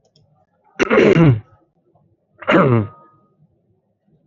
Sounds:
Throat clearing